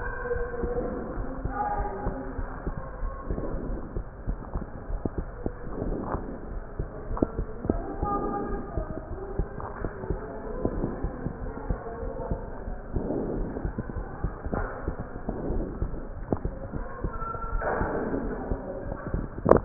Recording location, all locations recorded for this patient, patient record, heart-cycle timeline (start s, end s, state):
aortic valve (AV)
aortic valve (AV)+pulmonary valve (PV)+tricuspid valve (TV)+mitral valve (MV)
#Age: Child
#Sex: Female
#Height: 139.0 cm
#Weight: 34.7 kg
#Pregnancy status: False
#Murmur: Absent
#Murmur locations: nan
#Most audible location: nan
#Systolic murmur timing: nan
#Systolic murmur shape: nan
#Systolic murmur grading: nan
#Systolic murmur pitch: nan
#Systolic murmur quality: nan
#Diastolic murmur timing: nan
#Diastolic murmur shape: nan
#Diastolic murmur grading: nan
#Diastolic murmur pitch: nan
#Diastolic murmur quality: nan
#Outcome: Normal
#Campaign: 2015 screening campaign
0.00	0.88	unannotated
0.88	1.16	diastole
1.16	1.30	S1
1.30	1.42	systole
1.42	1.56	S2
1.56	1.78	diastole
1.78	1.92	S1
1.92	2.04	systole
2.04	2.14	S2
2.14	2.36	diastole
2.36	2.50	S1
2.50	2.64	systole
2.64	2.78	S2
2.78	3.02	diastole
3.02	3.16	S1
3.16	3.30	systole
3.30	3.42	S2
3.42	3.66	diastole
3.66	3.80	S1
3.80	3.96	systole
3.96	4.04	S2
4.04	4.26	diastole
4.26	4.40	S1
4.40	4.54	systole
4.54	4.66	S2
4.66	4.89	diastole
4.89	5.03	S1
5.03	5.17	systole
5.17	5.29	S2
5.29	5.82	diastole
5.82	5.98	S1
5.98	6.12	systole
6.12	6.26	S2
6.26	6.50	diastole
6.50	6.64	S1
6.64	6.78	systole
6.78	6.88	S2
6.88	7.08	diastole
7.08	7.20	S1
7.20	7.36	systole
7.36	7.50	S2
7.50	7.70	diastole
7.70	7.86	S1
7.86	7.99	systole
7.99	8.13	S2
8.13	8.46	diastole
8.46	8.60	S1
8.60	8.76	systole
8.76	8.88	S2
8.88	9.08	diastole
9.08	9.20	S1
9.20	9.36	systole
9.36	9.52	S2
9.52	9.80	diastole
9.80	9.92	S1
9.92	10.08	systole
10.08	10.22	S2
10.22	10.46	diastole
10.46	19.65	unannotated